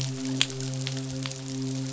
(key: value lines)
label: biophony, midshipman
recorder: SoundTrap 500